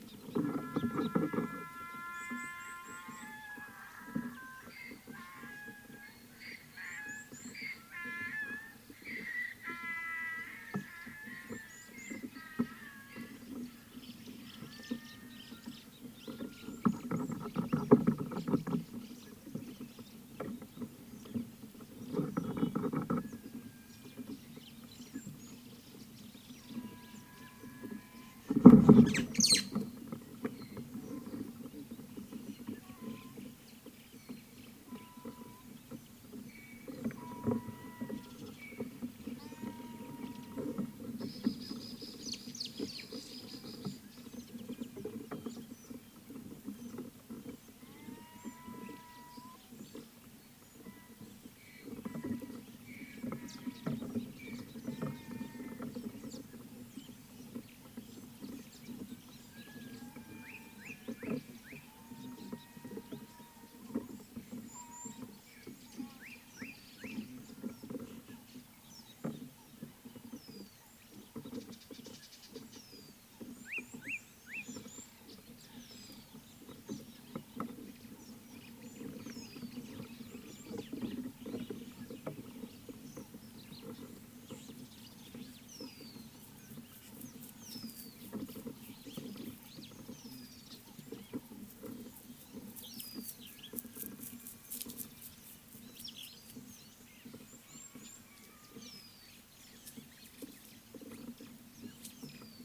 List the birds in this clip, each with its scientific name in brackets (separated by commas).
Rufous Chatterer (Argya rubiginosa), Slate-colored Boubou (Laniarius funebris), Mariqua Sunbird (Cinnyris mariquensis), Rüppell's Starling (Lamprotornis purpuroptera), Red-cheeked Cordonbleu (Uraeginthus bengalus), Cardinal Woodpecker (Chloropicus fuscescens)